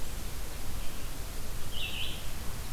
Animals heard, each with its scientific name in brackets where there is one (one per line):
Red-eyed Vireo (Vireo olivaceus)